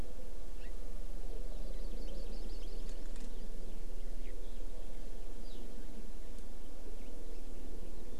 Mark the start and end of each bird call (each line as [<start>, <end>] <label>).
[0.57, 0.67] Hawaii Amakihi (Chlorodrepanis virens)
[1.77, 2.97] Hawaii Amakihi (Chlorodrepanis virens)